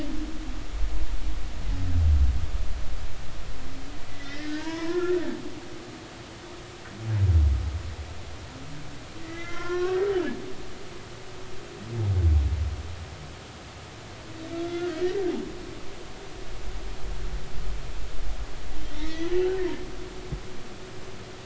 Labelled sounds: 4.1	5.2	humpback whale, 0.86 to 5.2 kHz
9.2	10.1	humpback whale, 0.99 to 2.7 kHz
14.5	14.9	humpback whale, 1.3 to 3.6 kHz
18.9	19.3	humpback whale, 1.8 to 3.9 kHz

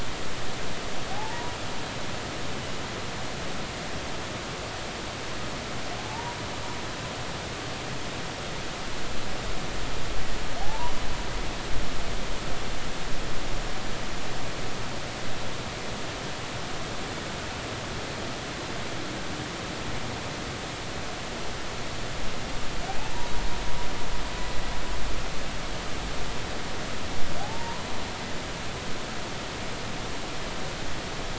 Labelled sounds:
1.1	1.6	humpback whale, 0.80 to 0.99 kHz
6.0	6.4	humpback whale, 0.83 to 1.0 kHz
10.6	10.9	humpback whale, 0.80 to 1.0 kHz
27.4	27.9	humpback whale, 0.80 to 1.1 kHz

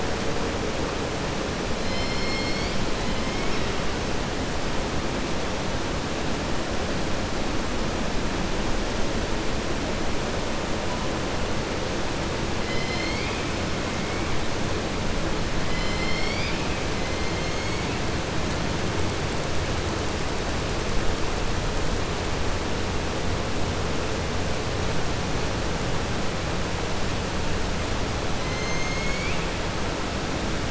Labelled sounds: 15.6	16.8	killer whale, southern resident, 2.0 to 5.6 kHz
28.4	29.4	killer whale, southern resident, 2.0 to 6.8 kHz

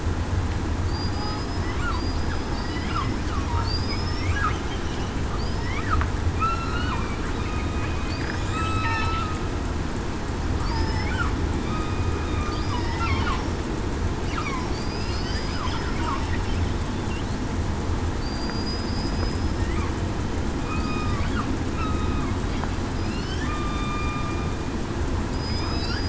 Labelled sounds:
0.9	1.6	killer whale, southern resident, 4.7 to 5.2 kHz
2.0	2.5	killer whale, southern resident, 4.7 to 5.1 kHz
3.6	4.3	killer whale, southern resident, 4.3 to 5.6 kHz
6.4	6.9	killer whale, southern resident, 1.2 to 1.5 kHz
8.5	9.1	killer whale, southern resident, 3.6 to 4.1 kHz
10.7	11.1	killer whale, southern resident, 4.9 to 5.3 kHz
11.6	12.6	killer whale, southern resident, 1.1 to 2.5 kHz
14.9	15.5	killer whale, southern resident, 5.0 to 5.2 kHz
18.2	19.1	killer whale, southern resident, 4.6 to 5.1 kHz
20.6	21.2	killer whale, southern resident, 2.4 to 2.6 kHz
23.4	24.2	killer whale, southern resident, 1.2 to 3.7 kHz
25.3	25.9	killer whale, southern resident, 4.9 to 5.2 kHz

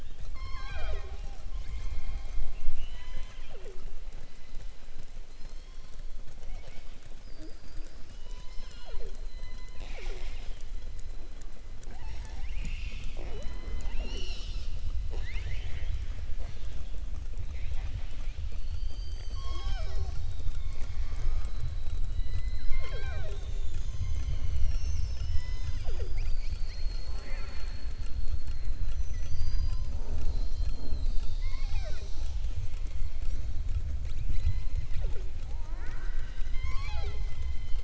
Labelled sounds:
9.2	10.6	killer whale, southern resident, 0.41 to 7.6 kHz
15.0	15.9	killer whale, southern resident, 0.39 to 5.2 kHz

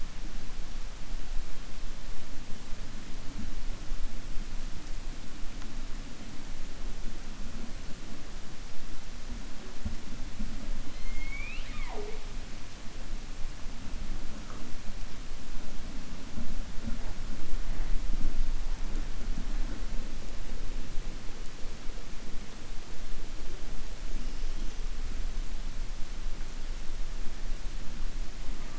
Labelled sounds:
10.8	12.2	killer whale, 0.42 to 4.4 kHz

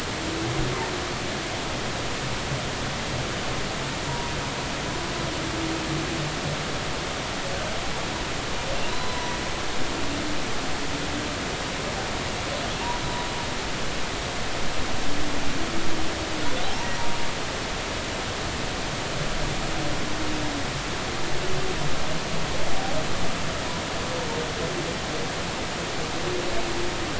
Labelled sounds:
4.0	4.3	humpback whale, 0.90 to 1.1 kHz
8.9	10.4	humpback whale, 0.93 to 4.1 kHz
16.6	16.9	humpback whale, 0.80 to 0.99 kHz

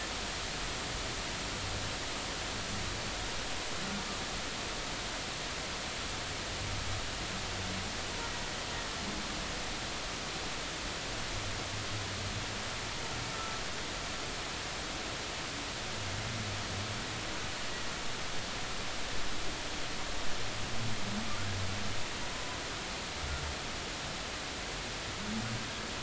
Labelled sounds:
13.3	13.6	humpback whale, 1.2 to 1.4 kHz

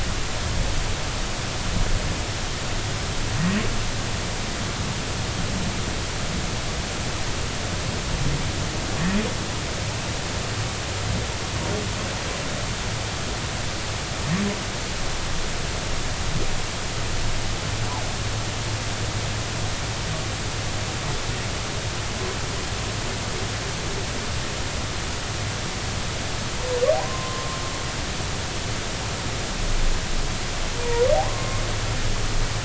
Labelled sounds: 26.9	27.6	humpback whale, 0.80 to 1.1 kHz
31.1	31.6	humpback whale, 0.80 to 1.1 kHz

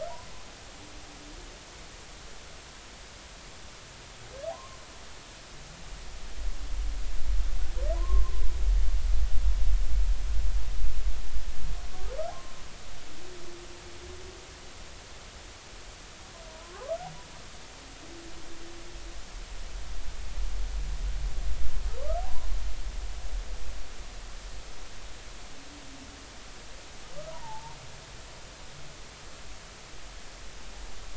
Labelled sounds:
4.5	4.8	humpback whale, 0.80 to 1.2 kHz
8.0	8.3	humpback whale, 0.93 to 1.1 kHz
16.5	16.8	humpback whale, 0.93 to 1.3 kHz
22.0	22.5	humpback whale, 0.80 to 1.4 kHz
27.3	27.8	humpback whale, 0.80 to 1.1 kHz

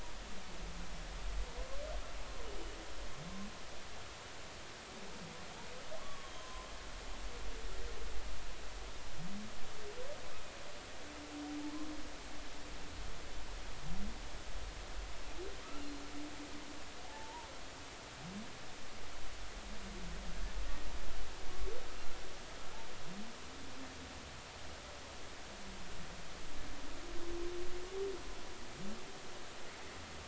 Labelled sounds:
6.0	6.7	humpback whale, 0.96 to 3.3 kHz
17.0	17.5	humpback whale, 0.80 to 1.1 kHz

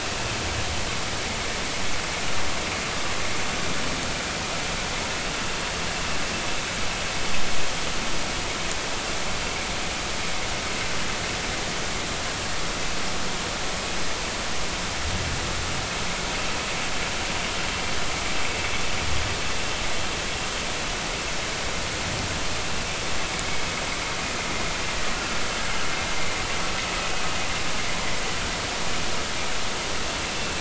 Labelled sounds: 30.3	30.5	vessel noise, 2.6 to 2.7 kHz

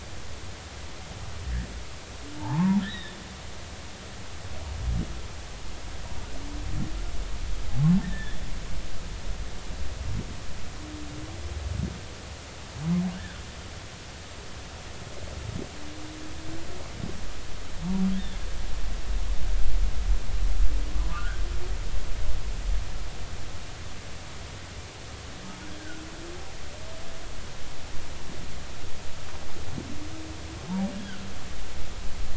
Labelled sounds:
2.4	3.2	humpback whale, 0.80 to 4.0 kHz
8.0	8.4	humpback whale, 1.6 to 2.0 kHz
13.1	13.4	humpback whale, 1.4 to 1.8 kHz
21.0	21.4	humpback whale, 0.96 to 1.8 kHz
25.8	26.0	humpback whale, 1.4 to 1.7 kHz

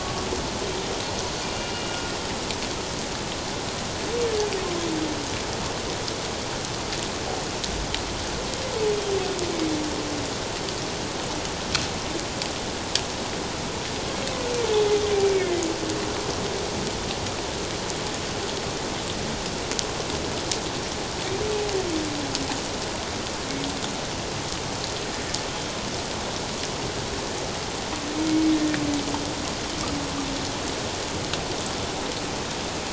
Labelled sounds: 1.2	1.9	humpback whale, 2.7 to 4.9 kHz
15.2	15.6	humpback whale, 1.9 to 2.4 kHz

